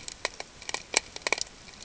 {"label": "ambient", "recorder": "HydroMoth"}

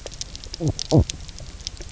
{"label": "biophony, knock croak", "recorder": "SoundTrap 300"}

